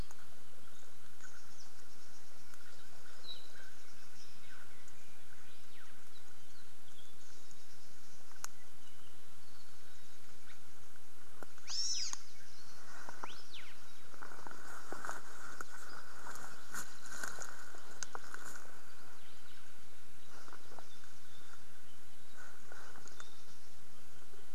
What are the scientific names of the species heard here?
Chasiempis sandwichensis